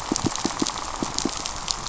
{"label": "biophony, pulse", "recorder": "SoundTrap 500"}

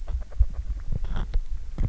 {"label": "biophony, grazing", "recorder": "SoundTrap 300"}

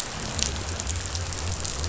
{"label": "biophony", "recorder": "SoundTrap 500"}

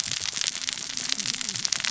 {"label": "biophony, cascading saw", "recorder": "SoundTrap 600 or HydroMoth"}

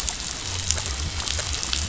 {"label": "biophony", "recorder": "SoundTrap 500"}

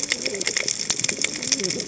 {"label": "biophony, cascading saw", "recorder": "HydroMoth"}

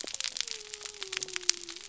{"label": "biophony", "recorder": "SoundTrap 300"}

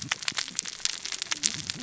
{"label": "biophony, cascading saw", "recorder": "SoundTrap 600 or HydroMoth"}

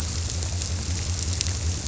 {"label": "biophony", "recorder": "SoundTrap 300"}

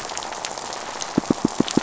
{"label": "biophony, pulse", "recorder": "SoundTrap 500"}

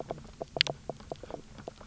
{"label": "biophony, knock croak", "recorder": "SoundTrap 300"}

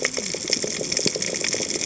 {"label": "biophony, cascading saw", "recorder": "HydroMoth"}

